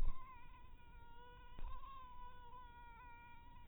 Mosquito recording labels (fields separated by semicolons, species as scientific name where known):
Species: mosquito; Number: one; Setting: cup